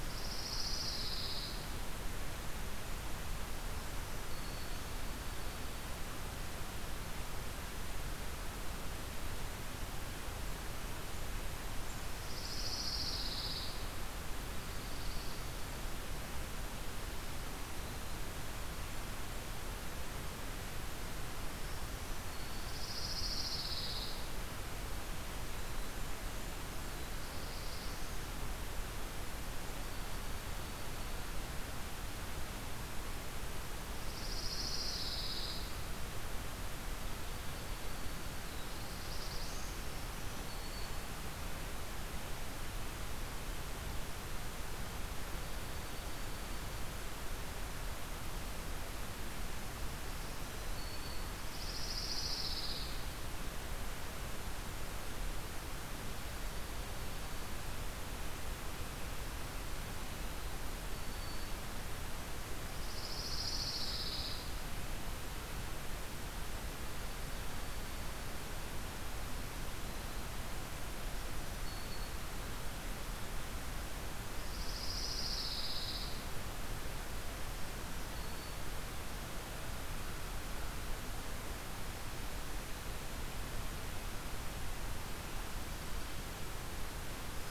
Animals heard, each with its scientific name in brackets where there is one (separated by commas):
Black-throated Green Warbler (Setophaga virens), Pine Warbler (Setophaga pinus), Dark-eyed Junco (Junco hyemalis), Black-throated Blue Warbler (Setophaga caerulescens), Blackburnian Warbler (Setophaga fusca)